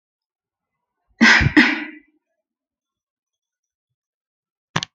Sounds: Cough